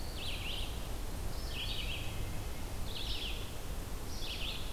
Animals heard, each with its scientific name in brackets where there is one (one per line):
Hermit Thrush (Catharus guttatus)
Red-eyed Vireo (Vireo olivaceus)